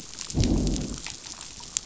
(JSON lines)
{"label": "biophony, growl", "recorder": "SoundTrap 500"}